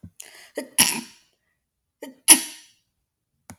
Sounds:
Sneeze